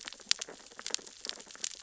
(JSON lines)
{"label": "biophony, sea urchins (Echinidae)", "recorder": "SoundTrap 600 or HydroMoth"}